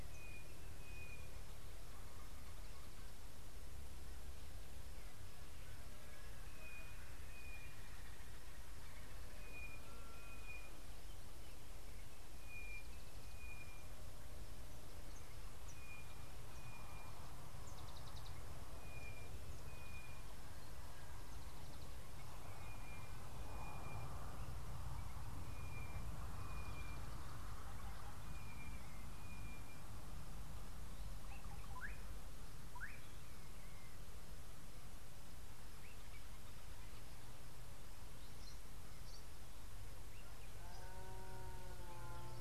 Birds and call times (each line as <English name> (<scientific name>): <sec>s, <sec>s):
Sulphur-breasted Bushshrike (Telophorus sulfureopectus): 1.0s, 7.3s, 12.6s, 19.9s, 26.6s
Slate-colored Boubou (Laniarius funebris): 31.8s